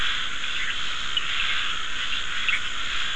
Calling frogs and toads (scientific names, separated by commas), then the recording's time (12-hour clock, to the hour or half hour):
Scinax perereca
5am